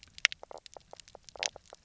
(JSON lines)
{"label": "biophony, knock croak", "recorder": "SoundTrap 300"}